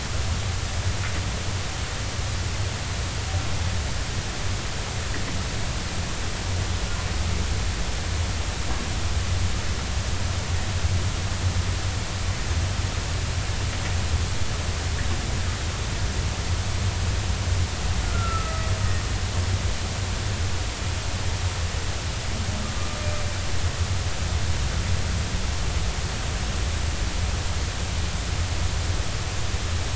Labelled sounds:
18.0	18.6	humpback whale, 1.2 to 1.4 kHz

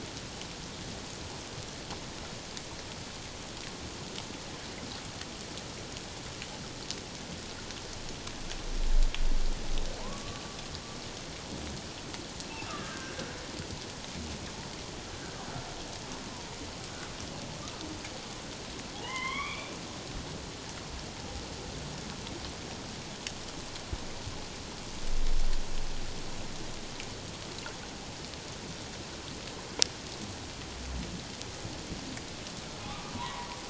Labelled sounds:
10.0	10.4	humpback whale, 0.88 to 1.2 kHz
12.5	13.2	humpback whale, 1.1 to 2.8 kHz
19.0	19.8	humpback whale, 0.81 to 3.6 kHz
32.8	33.5	humpback whale, 0.91 to 2.0 kHz

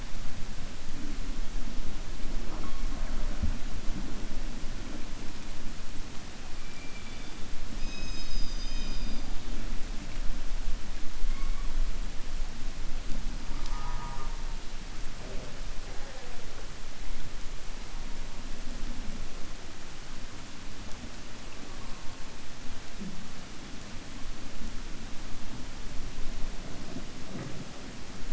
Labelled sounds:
6.7	7.4	killer whale, 2.3 to 3.7 kHz

